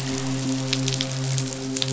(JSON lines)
{"label": "biophony, midshipman", "recorder": "SoundTrap 500"}